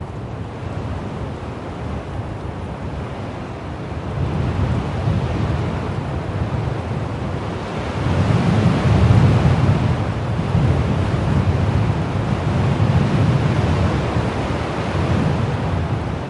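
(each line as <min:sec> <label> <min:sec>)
0:00.0 A strong wind blows continuously outside. 0:16.3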